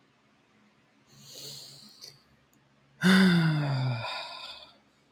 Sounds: Sigh